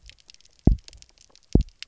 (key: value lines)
label: biophony, double pulse
recorder: SoundTrap 300